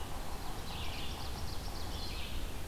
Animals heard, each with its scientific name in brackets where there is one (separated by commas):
Ovenbird (Seiurus aurocapilla), Red-eyed Vireo (Vireo olivaceus)